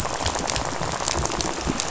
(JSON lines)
{"label": "biophony, rattle", "recorder": "SoundTrap 500"}